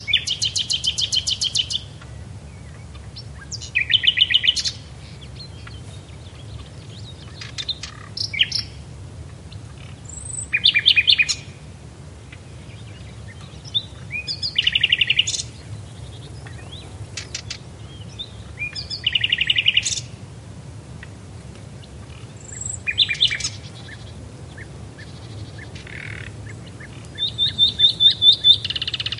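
A bird is chirping rhythmically nearby. 0:00.0 - 0:01.9
Birds singing quietly in the distant background. 0:00.0 - 0:29.2
A bird is chirping rhythmically nearby. 0:03.5 - 0:04.8
A bird is chirping rhythmically nearby. 0:07.3 - 0:08.6
A bird is chirping rhythmically nearby. 0:10.1 - 0:11.4
A bird is chirping rhythmically nearby. 0:13.7 - 0:15.5
A bird is chirping rhythmically nearby. 0:18.9 - 0:20.1
A bird is chirping rhythmically nearby. 0:22.3 - 0:23.6
An insect makes a raspy sound in the background. 0:24.9 - 0:27.0
A bird is chirping rhythmically nearby. 0:27.2 - 0:29.2

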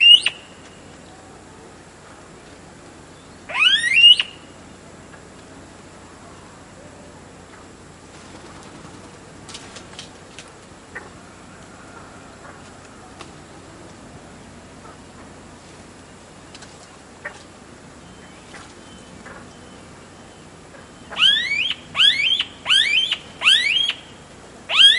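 A bird sings loudly in an increasing pattern outdoors. 0:00.0 - 0:00.5
A river hums quietly in a steady, distant pattern. 0:00.0 - 0:25.0
A bird sings loudly in an increasing pattern outdoors. 0:03.4 - 0:04.4
A rhythmic fluttering sound repeats in the distance. 0:08.0 - 0:09.5
A clicking sound repeats quietly outdoors. 0:09.4 - 0:10.6
A bird sings quietly in a repeating pattern outdoors. 0:10.9 - 0:13.4
A bird sings quietly in a repeating pattern outdoors. 0:14.8 - 0:21.1
A whistle sounds quietly in a repeating pattern in the distance. 0:17.5 - 0:21.1
A bird sings loudly in a repeating pattern outdoors. 0:21.1 - 0:25.0

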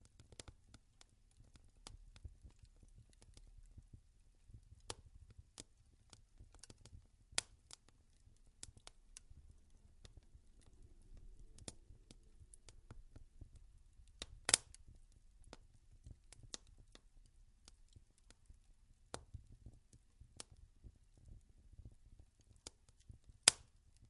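Continuous and constant sound of wood and coal burning with popping and crackling flames. 0:00.0 - 0:24.1

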